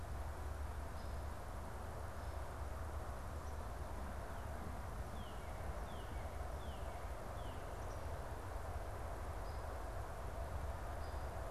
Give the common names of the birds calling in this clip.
Northern Cardinal